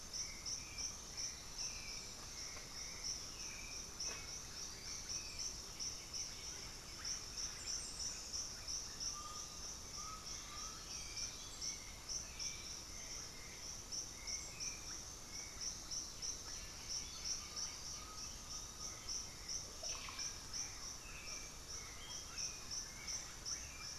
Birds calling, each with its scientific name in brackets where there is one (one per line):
Black-throated Antbird (Myrmophylax atrothorax)
Russet-backed Oropendola (Psarocolius angustifrons)
Bluish-fronted Jacamar (Galbula cyanescens)
Undulated Tinamou (Crypturellus undulatus)
Hauxwell's Thrush (Turdus hauxwelli)
unidentified bird
White-winged Becard (Pachyramphus polychopterus)